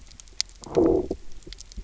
{"label": "biophony, low growl", "recorder": "SoundTrap 300"}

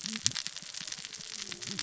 {"label": "biophony, cascading saw", "recorder": "SoundTrap 600 or HydroMoth"}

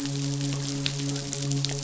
{"label": "biophony, midshipman", "recorder": "SoundTrap 500"}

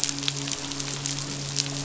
{"label": "biophony, midshipman", "recorder": "SoundTrap 500"}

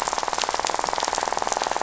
{"label": "biophony, rattle", "recorder": "SoundTrap 500"}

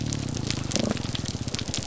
{"label": "biophony, grouper groan", "recorder": "SoundTrap 300"}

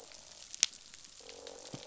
{"label": "biophony, croak", "recorder": "SoundTrap 500"}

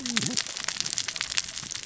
{"label": "biophony, cascading saw", "recorder": "SoundTrap 600 or HydroMoth"}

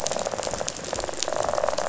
{"label": "biophony, rattle response", "recorder": "SoundTrap 500"}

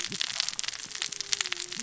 {"label": "biophony, cascading saw", "recorder": "SoundTrap 600 or HydroMoth"}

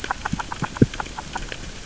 {"label": "biophony, grazing", "recorder": "SoundTrap 600 or HydroMoth"}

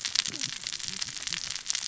{"label": "biophony, cascading saw", "recorder": "SoundTrap 600 or HydroMoth"}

